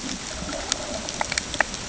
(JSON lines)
{"label": "ambient", "recorder": "HydroMoth"}